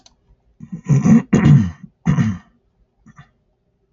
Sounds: Throat clearing